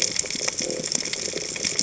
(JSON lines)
{"label": "biophony", "recorder": "HydroMoth"}